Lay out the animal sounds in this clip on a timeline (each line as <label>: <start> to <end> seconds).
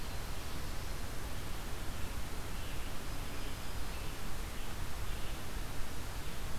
Scarlet Tanager (Piranga olivacea): 1.7 to 5.4 seconds